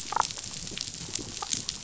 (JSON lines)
{"label": "biophony, damselfish", "recorder": "SoundTrap 500"}